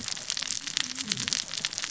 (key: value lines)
label: biophony, cascading saw
recorder: SoundTrap 600 or HydroMoth